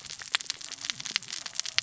{"label": "biophony, cascading saw", "recorder": "SoundTrap 600 or HydroMoth"}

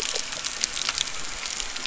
{"label": "anthrophony, boat engine", "recorder": "SoundTrap 300"}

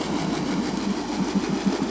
{"label": "anthrophony, boat engine", "recorder": "SoundTrap 500"}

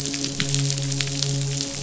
{"label": "biophony, midshipman", "recorder": "SoundTrap 500"}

